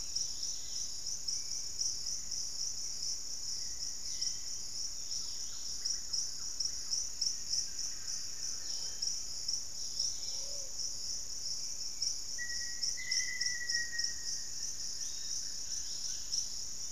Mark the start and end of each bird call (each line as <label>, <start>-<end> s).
Yellow-margined Flycatcher (Tolmomyias assimilis), 0.0-0.8 s
Dusky-capped Greenlet (Pachysylvia hypoxantha), 0.0-1.0 s
Hauxwell's Thrush (Turdus hauxwelli), 0.0-4.7 s
Dusky-capped Greenlet (Pachysylvia hypoxantha), 4.9-6.0 s
Buff-breasted Wren (Cantorchilus leucotis), 5.0-7.7 s
Wing-barred Piprites (Piprites chloris), 7.1-9.2 s
Plumbeous Pigeon (Patagioenas plumbea), 8.4-10.8 s
Dusky-capped Greenlet (Pachysylvia hypoxantha), 9.5-10.7 s
Hauxwell's Thrush (Turdus hauxwelli), 11.5-16.9 s
Black-faced Antthrush (Formicarius analis), 12.2-14.5 s
Wing-barred Piprites (Piprites chloris), 13.8-15.9 s
Yellow-margined Flycatcher (Tolmomyias assimilis), 14.8-16.9 s
Dusky-capped Greenlet (Pachysylvia hypoxantha), 15.5-16.6 s